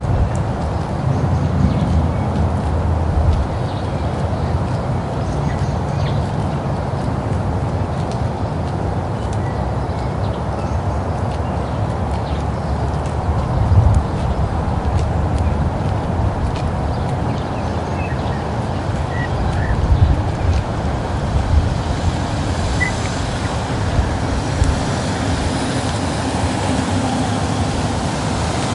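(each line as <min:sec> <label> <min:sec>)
0:00.0 Birds chirping in the distance. 0:28.7
0:00.0 Footsteps of a person walking. 0:28.7
0:21.7 Vehicles moving on a road approach from a distance and get closer. 0:28.7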